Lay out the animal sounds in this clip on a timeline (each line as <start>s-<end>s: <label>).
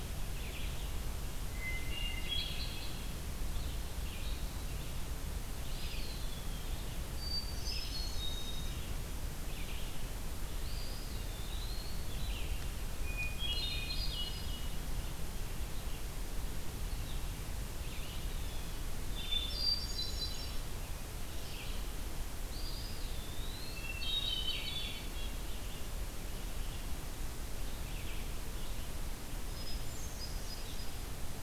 0.0s-31.4s: Red-eyed Vireo (Vireo olivaceus)
1.5s-3.1s: Hermit Thrush (Catharus guttatus)
5.4s-6.9s: Eastern Wood-Pewee (Contopus virens)
7.1s-9.0s: Hermit Thrush (Catharus guttatus)
10.4s-12.2s: Eastern Wood-Pewee (Contopus virens)
13.0s-14.9s: Hermit Thrush (Catharus guttatus)
18.2s-18.8s: Blue Jay (Cyanocitta cristata)
19.1s-20.9s: Hermit Thrush (Catharus guttatus)
22.4s-23.8s: Eastern Wood-Pewee (Contopus virens)
23.6s-25.4s: Hermit Thrush (Catharus guttatus)
25.0s-25.5s: Red-breasted Nuthatch (Sitta canadensis)
29.4s-31.4s: Hermit Thrush (Catharus guttatus)